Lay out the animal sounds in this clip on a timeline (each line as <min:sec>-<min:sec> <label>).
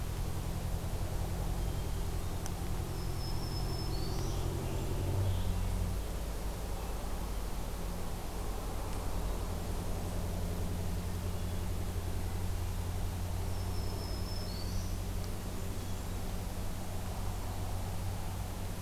0:01.6-0:02.5 Hermit Thrush (Catharus guttatus)
0:02.7-0:04.5 Black-throated Green Warbler (Setophaga virens)
0:04.0-0:05.7 American Robin (Turdus migratorius)
0:11.1-0:11.9 Hermit Thrush (Catharus guttatus)
0:13.3-0:15.0 Black-throated Green Warbler (Setophaga virens)